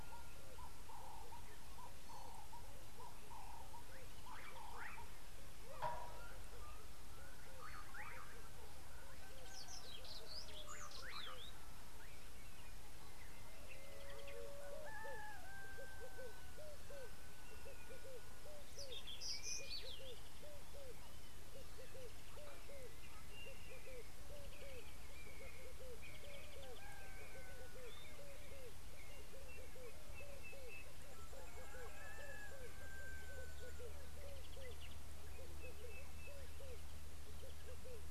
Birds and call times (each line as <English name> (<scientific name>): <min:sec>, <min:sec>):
Slate-colored Boubou (Laniarius funebris): 0:04.8
Brimstone Canary (Crithagra sulphurata): 0:10.1, 0:19.4
Red-eyed Dove (Streptopelia semitorquata): 0:16.7, 0:36.3
Blue-naped Mousebird (Urocolius macrourus): 0:25.1
Sulphur-breasted Bushshrike (Telophorus sulfureopectus): 0:30.4, 0:35.9